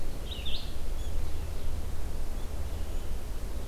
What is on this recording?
Red-eyed Vireo